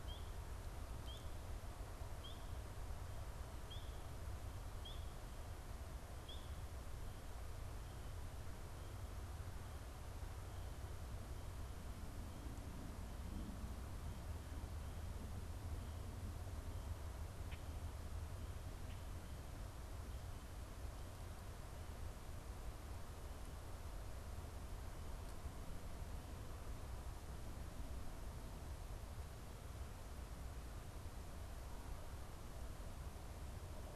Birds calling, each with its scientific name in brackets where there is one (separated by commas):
Common Grackle (Quiscalus quiscula)